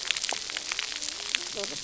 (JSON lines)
{"label": "biophony, cascading saw", "recorder": "SoundTrap 300"}